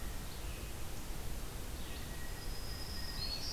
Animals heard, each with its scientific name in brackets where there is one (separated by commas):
Red-eyed Vireo (Vireo olivaceus), Blue Jay (Cyanocitta cristata), Black-throated Green Warbler (Setophaga virens)